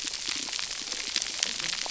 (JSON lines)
{"label": "biophony", "recorder": "SoundTrap 300"}
{"label": "biophony, cascading saw", "recorder": "SoundTrap 300"}